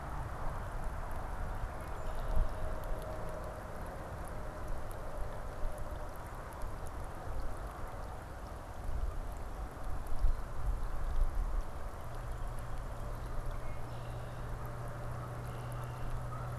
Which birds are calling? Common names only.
Red-winged Blackbird